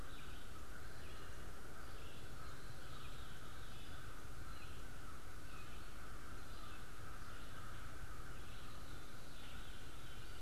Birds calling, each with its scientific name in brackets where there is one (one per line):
Veery (Catharus fuscescens)
Red-eyed Vireo (Vireo olivaceus)
American Crow (Corvus brachyrhynchos)